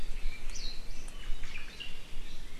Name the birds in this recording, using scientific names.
Loxops mana, Myadestes obscurus